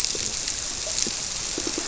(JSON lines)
{"label": "biophony, squirrelfish (Holocentrus)", "recorder": "SoundTrap 300"}